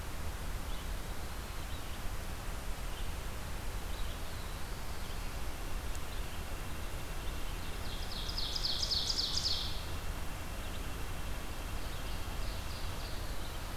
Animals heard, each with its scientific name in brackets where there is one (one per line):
Ovenbird (Seiurus aurocapilla)
Red-eyed Vireo (Vireo olivaceus)
White-breasted Nuthatch (Sitta carolinensis)